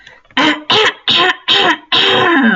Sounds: Throat clearing